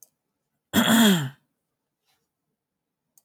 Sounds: Throat clearing